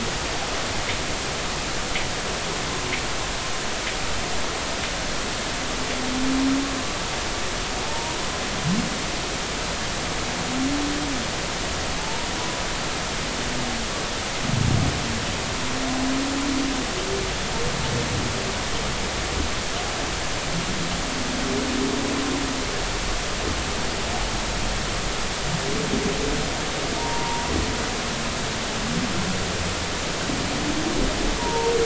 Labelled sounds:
7.8	8.2	humpback whale, 0.80 to 0.99 kHz
12.0	12.3	humpback whale, 0.83 to 0.99 kHz
27.0	27.5	humpback whale, 0.86 to 1.1 kHz
31.4	31.7	humpback whale, 0.86 to 0.99 kHz

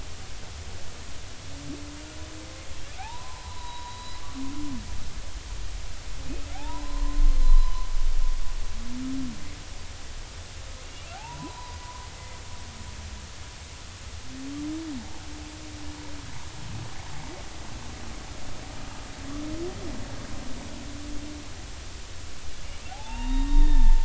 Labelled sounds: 3.0	4.2	humpback whale, 0.80 to 4.0 kHz
6.5	7.9	humpback whale, 0.80 to 4.2 kHz
10.8	11.8	humpback whale, 0.80 to 3.0 kHz
12.1	12.4	humpback whale, 2.0 to 2.1 kHz
22.9	24.0	humpback whale, 0.80 to 3.8 kHz

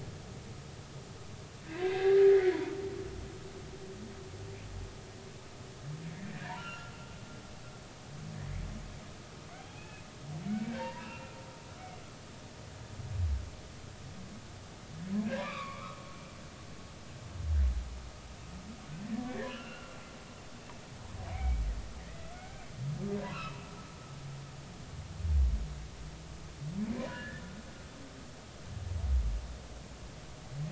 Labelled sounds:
1.7	2.5	humpback whale, 1.4 to 3.8 kHz
6.5	6.9	humpback whale, 1.3 to 3.1 kHz
8.3	8.6	humpback whale, 1.7 to 2.3 kHz
9.8	10.1	humpback whale, 1.6 to 2.7 kHz
10.5	11.4	humpback whale, 0.86 to 2.9 kHz
15.4	16.0	humpback whale, 0.93 to 3.9 kHz
19.3	20.0	humpback whale, 1.3 to 3.0 kHz
21.3	23.6	humpback whale, 0.93 to 2.8 kHz
27.0	27.4	humpback whale, 0.93 to 3.0 kHz

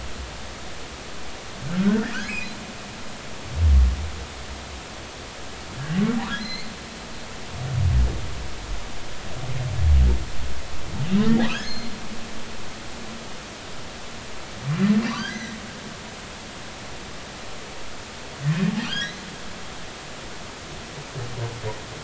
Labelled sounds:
1.7	2.5	humpback whale, 1.3 to 5.2 kHz
6.4	6.7	humpback whale, 1.9 to 4.5 kHz
11.3	11.9	humpback whale, 1.6 to 4.4 kHz
15.0	15.6	humpback whale, 1.4 to 6.5 kHz
18.8	19.3	humpback whale, 1.4 to 4.3 kHz

